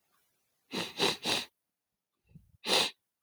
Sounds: Sniff